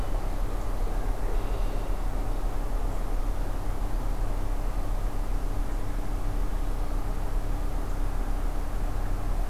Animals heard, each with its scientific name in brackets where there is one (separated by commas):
Red-winged Blackbird (Agelaius phoeniceus)